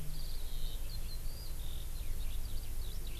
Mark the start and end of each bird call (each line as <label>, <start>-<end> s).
Eurasian Skylark (Alauda arvensis), 0.0-3.2 s